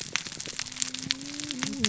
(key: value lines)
label: biophony, cascading saw
recorder: SoundTrap 600 or HydroMoth